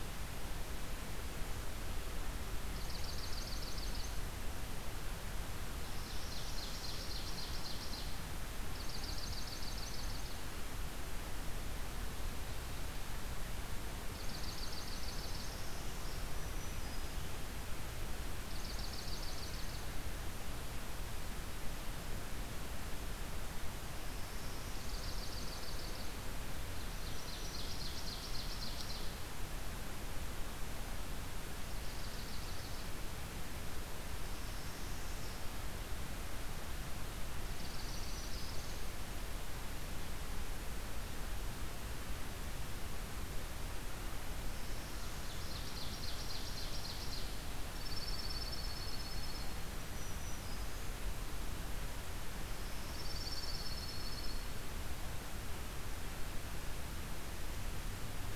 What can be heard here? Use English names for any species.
Swamp Sparrow, Ovenbird, Black-throated Green Warbler, Northern Parula, Dark-eyed Junco